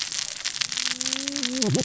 {"label": "biophony, cascading saw", "recorder": "SoundTrap 600 or HydroMoth"}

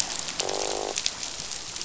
{"label": "biophony, croak", "recorder": "SoundTrap 500"}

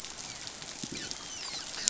{"label": "biophony, dolphin", "recorder": "SoundTrap 500"}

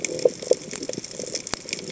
{"label": "biophony", "recorder": "HydroMoth"}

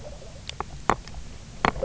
{"label": "biophony, knock croak", "recorder": "SoundTrap 300"}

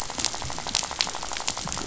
{"label": "biophony, rattle", "recorder": "SoundTrap 500"}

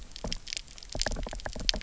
{"label": "biophony, knock", "recorder": "SoundTrap 300"}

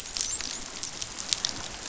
{"label": "biophony, dolphin", "recorder": "SoundTrap 500"}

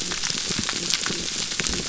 {"label": "biophony", "recorder": "SoundTrap 300"}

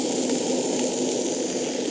{"label": "anthrophony, boat engine", "recorder": "HydroMoth"}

